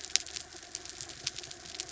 {"label": "anthrophony, mechanical", "recorder": "SoundTrap 300"}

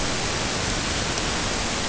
{"label": "ambient", "recorder": "HydroMoth"}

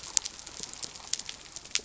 {"label": "biophony", "recorder": "SoundTrap 300"}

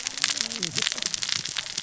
{"label": "biophony, cascading saw", "recorder": "SoundTrap 600 or HydroMoth"}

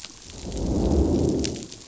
{"label": "biophony, growl", "recorder": "SoundTrap 500"}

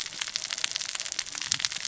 {"label": "biophony, cascading saw", "recorder": "SoundTrap 600 or HydroMoth"}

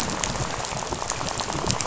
{"label": "biophony, rattle", "recorder": "SoundTrap 500"}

